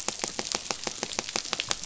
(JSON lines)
{"label": "biophony, pulse", "recorder": "SoundTrap 500"}